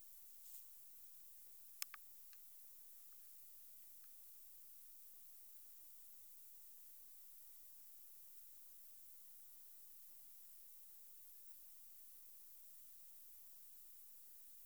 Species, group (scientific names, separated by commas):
Odontura aspericauda, Orthoptera